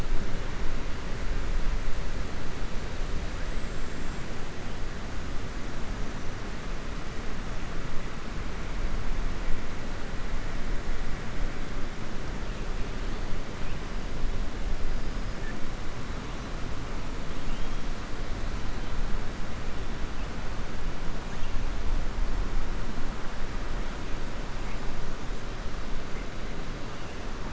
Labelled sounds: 3.4	4.2	killer whale, 6.7 to 7.8 kHz
17.3	17.7	killer whale, 2.5 to 3.8 kHz

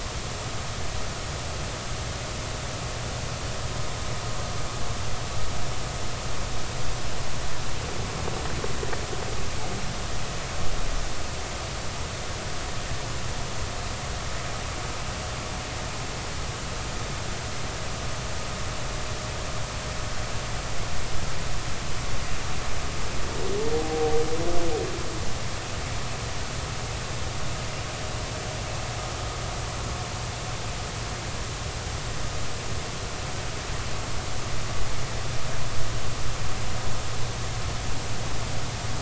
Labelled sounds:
23.7	24.2	humpback whale, 0.80 to 0.83 kHz

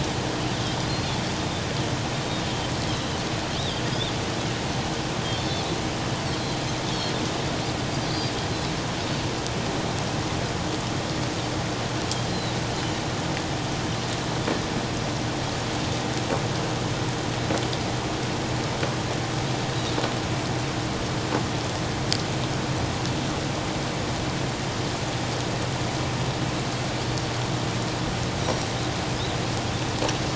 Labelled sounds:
2.4	2.7	Pacific white-sided dolphin, 3.0 to 3.2 kHz
3.6	3.9	Pacific white-sided dolphin, 3.1 to 3.9 kHz
5.3	5.6	Pacific white-sided dolphin, 3.4 to 4.5 kHz
8.0	8.3	Pacific white-sided dolphin, 4.4 to 4.8 kHz
12.3	12.5	Pacific white-sided dolphin, 3.8 to 4.3 kHz
28.4	28.7	Pacific white-sided dolphin, 5.6 to 5.9 kHz

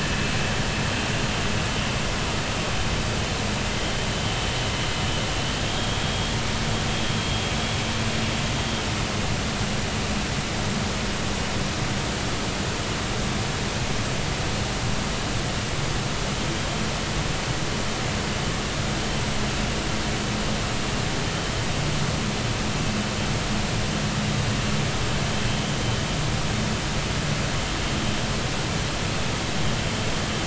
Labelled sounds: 5.7	6.3	vessel noise, 3.1 to 3.4 kHz

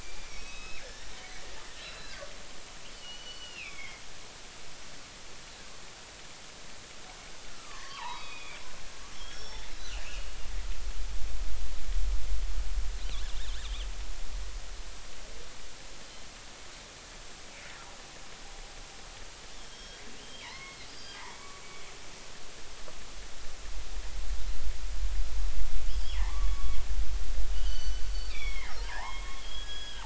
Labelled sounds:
0.0	1.4	killer whale, northern resident, G clan, 1.6 to 5.8 kHz
1.8	2.3	killer whale, northern resident, G clan, 1.4 to 4.1 kHz
2.9	4.0	killer whale, northern resident, G clan, 1.1 to 5.2 kHz
7.5	10.3	killer whale, northern resident, G clan, 0.80 to 5.6 kHz
19.6	21.6	killer whale, northern resident, G clan, 0.83 to 5.6 kHz
25.9	30.0	killer whale, northern resident, G clan, 0.80 to 6.1 kHz

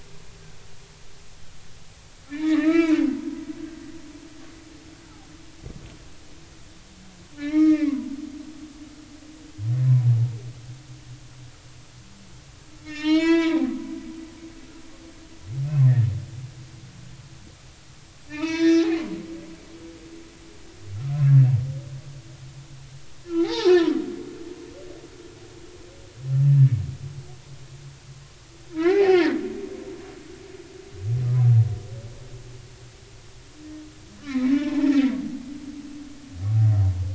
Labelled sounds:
2.3	3.9	humpback whale, 1.1 to 2.8 kHz
7.4	8.0	humpback whale, 1.1 to 5.7 kHz
12.8	13.6	humpback whale, 0.86 to 7.3 kHz
18.3	18.8	humpback whale, 0.86 to 5.7 kHz
23.4	24.0	humpback whale, 0.80 to 5.6 kHz
28.7	29.4	humpback whale, 0.80 to 2.5 kHz
34.2	34.9	humpback whale, 0.83 to 4.1 kHz

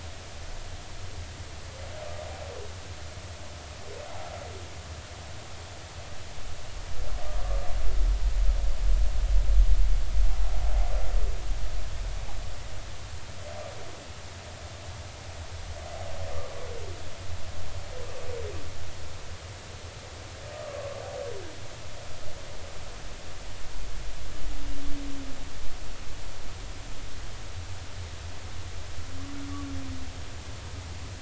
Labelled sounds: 20.5	20.9	humpback whale, 1.0 to 1.3 kHz

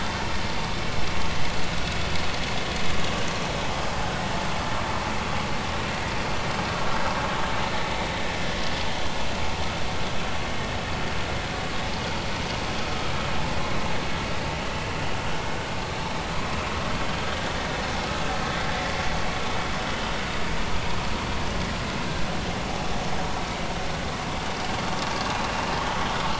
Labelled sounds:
14.7	14.9	vessel noise, 2.6 to 2.8 kHz
18.4	18.7	vessel noise, 1.7 to 2.1 kHz

